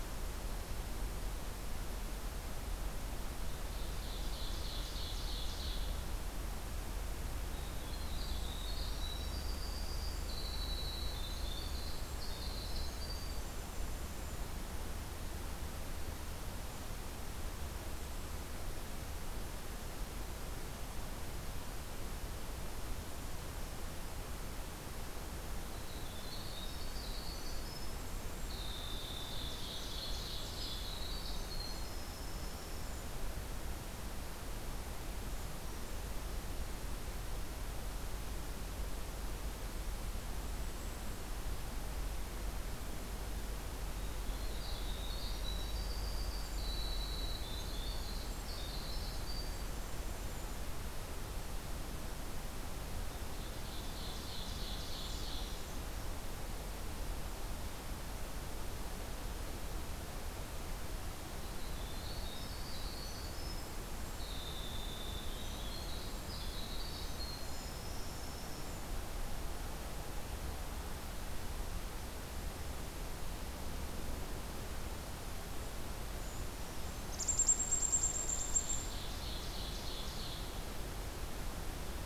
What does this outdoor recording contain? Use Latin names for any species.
Seiurus aurocapilla, Troglodytes hiemalis, Certhia americana, unidentified call